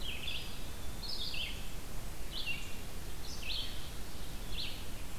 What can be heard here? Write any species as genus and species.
Vireo olivaceus, Contopus virens